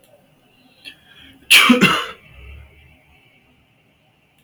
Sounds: Sneeze